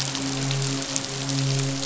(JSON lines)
{"label": "biophony, midshipman", "recorder": "SoundTrap 500"}